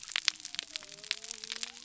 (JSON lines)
{"label": "biophony", "recorder": "SoundTrap 300"}